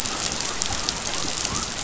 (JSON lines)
{"label": "biophony", "recorder": "SoundTrap 500"}